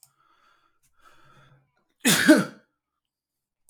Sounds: Sneeze